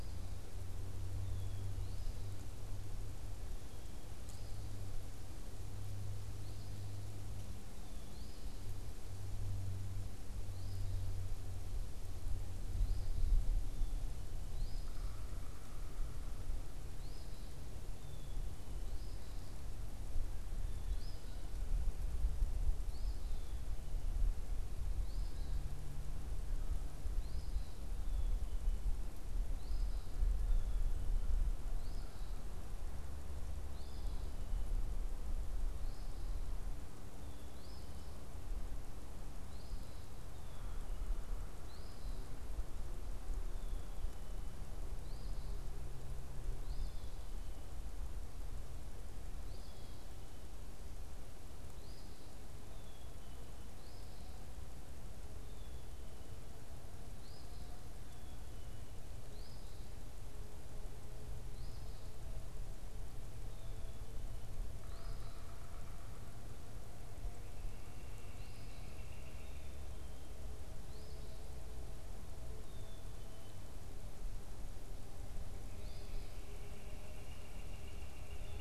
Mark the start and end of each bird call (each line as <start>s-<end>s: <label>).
0.0s-8.6s: Eastern Phoebe (Sayornis phoebe)
1.1s-1.7s: Black-capped Chickadee (Poecile atricapillus)
10.2s-23.3s: Eastern Phoebe (Sayornis phoebe)
14.7s-16.7s: Yellow-bellied Sapsucker (Sphyrapicus varius)
17.9s-18.6s: Black-capped Chickadee (Poecile atricapillus)
24.9s-36.2s: Eastern Phoebe (Sayornis phoebe)
27.9s-31.2s: Black-capped Chickadee (Poecile atricapillus)
37.6s-52.2s: Eastern Phoebe (Sayornis phoebe)
40.2s-50.5s: Black-capped Chickadee (Poecile atricapillus)
52.6s-64.3s: Black-capped Chickadee (Poecile atricapillus)
53.6s-65.5s: Eastern Phoebe (Sayornis phoebe)
64.7s-66.6s: Yellow-bellied Sapsucker (Sphyrapicus varius)
67.6s-69.8s: Northern Flicker (Colaptes auratus)
68.2s-78.6s: Eastern Phoebe (Sayornis phoebe)
69.2s-73.6s: Black-capped Chickadee (Poecile atricapillus)
76.3s-78.6s: Northern Flicker (Colaptes auratus)